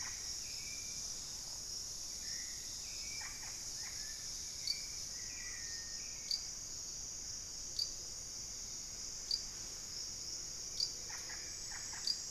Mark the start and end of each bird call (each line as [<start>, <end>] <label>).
[0.00, 4.36] Russet-backed Oropendola (Psarocolius angustifrons)
[0.00, 6.66] Hauxwell's Thrush (Turdus hauxwelli)
[5.16, 5.75] unidentified bird
[10.96, 12.26] Russet-backed Oropendola (Psarocolius angustifrons)